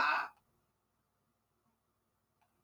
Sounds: Laughter